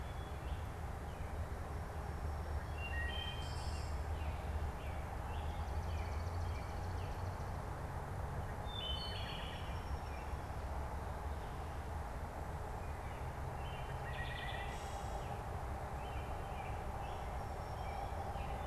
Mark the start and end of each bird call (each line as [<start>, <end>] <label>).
[0.00, 7.40] American Robin (Turdus migratorius)
[2.60, 4.20] Wood Thrush (Hylocichla mustelina)
[5.50, 7.50] Swamp Sparrow (Melospiza georgiana)
[8.60, 10.60] Wood Thrush (Hylocichla mustelina)
[12.60, 18.67] American Robin (Turdus migratorius)
[13.90, 15.20] Wood Thrush (Hylocichla mustelina)